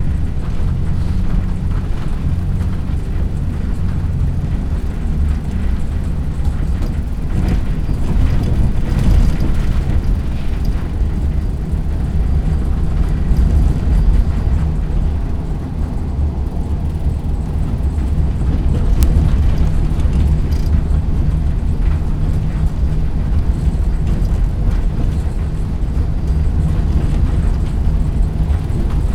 Is there anyone speaking during the drying of clothes?
no